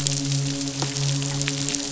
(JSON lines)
{"label": "biophony, midshipman", "recorder": "SoundTrap 500"}